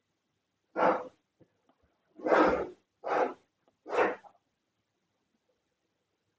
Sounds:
Sniff